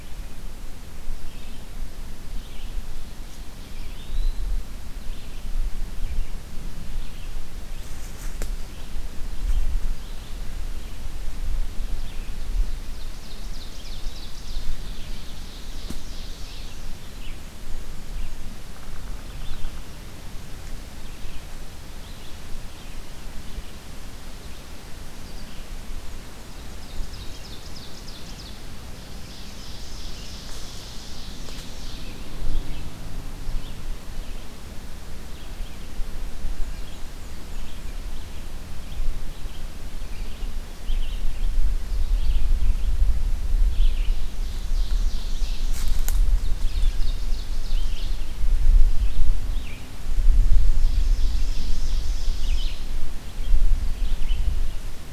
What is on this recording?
Red-eyed Vireo, Eastern Wood-Pewee, Ovenbird, Black-and-white Warbler